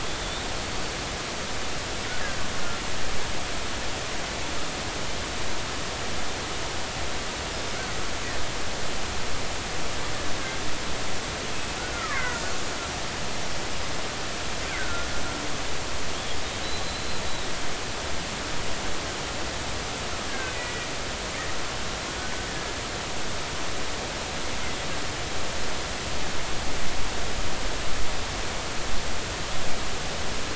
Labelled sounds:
0.2	0.5	killer whale, Bigg's (transient), 3.4 to 3.8 kHz
2.2	2.4	killer whale, Bigg's (transient), 1.5 to 1.9 kHz
11.8	12.4	killer whale, Bigg's (transient), 1.1 to 2.3 kHz
14.8	15.1	killer whale, Bigg's (transient), 1.3 to 1.6 kHz
16.6	17.0	killer whale, Bigg's (transient), 3.8 to 4.2 kHz
20.3	20.6	killer whale, Bigg's (transient), 1.5 to 1.8 kHz

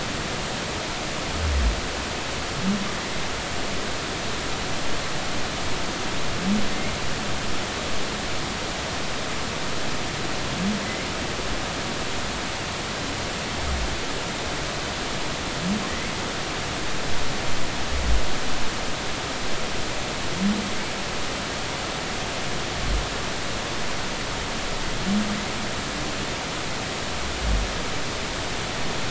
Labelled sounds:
15.9	16.1	humpback whale, 1.8 to 2.3 kHz

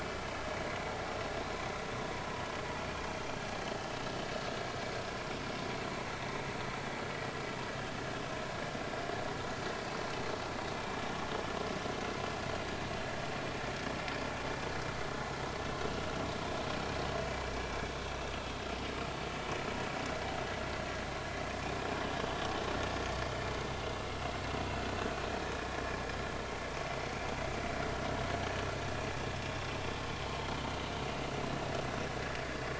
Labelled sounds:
31.0	31.4	vessel noise, 2.7 to 3.0 kHz

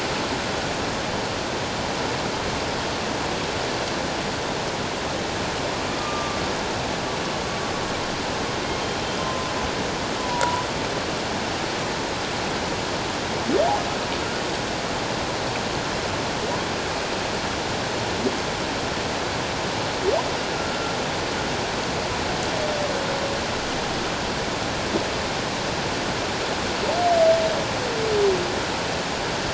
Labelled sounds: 5.9	6.4	humpback whale, 1.1 to 1.3 kHz
9.2	9.5	humpback whale, 1.0 to 1.1 kHz
10.2	10.6	humpback whale, 0.91 to 1.0 kHz
20.5	20.9	humpback whale, 1.3 to 1.4 kHz

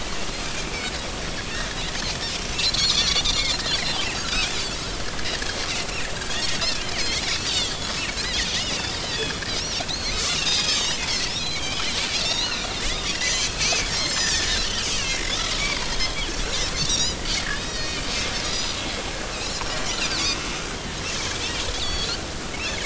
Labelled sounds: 1.5	1.8	Pacific white-sided dolphin, 1.5 to 2.0 kHz
2.7	3.4	Pacific white-sided dolphin, 3.3 to 6.1 kHz
4.2	4.8	Pacific white-sided dolphin, 3.3 to 4.1 kHz
6.3	6.9	Pacific white-sided dolphin, 1.8 to 2.8 kHz
7.4	7.8	Pacific white-sided dolphin, 3.1 to 4.8 kHz
8.2	8.5	Pacific white-sided dolphin, 4.7 to 5.1 kHz
9.0	16.3	Pacific white-sided dolphin, 0.99 to 7.5 kHz
16.8	18.0	Pacific white-sided dolphin, 1.8 to 7.1 kHz
18.5	18.8	Pacific white-sided dolphin, 4.7 to 6.0 kHz
19.4	20.4	Pacific white-sided dolphin, 3.8 to 5.1 kHz
21.7	22.8	Pacific white-sided dolphin, 2.9 to 6.8 kHz

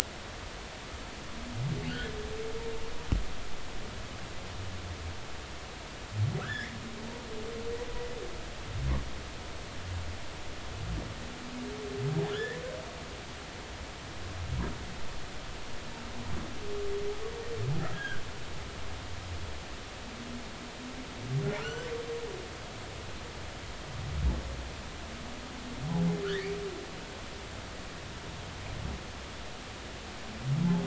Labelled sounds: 6.4	6.8	humpback whale, 1.2 to 2.2 kHz
12.3	12.6	humpback whale, 1.3 to 3.5 kHz
17.9	18.2	humpback whale, 1.4 to 1.7 kHz
21.6	21.9	humpback whale, 1.2 to 7.6 kHz
26.2	26.5	humpback whale, 1.2 to 2.0 kHz

